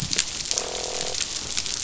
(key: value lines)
label: biophony, croak
recorder: SoundTrap 500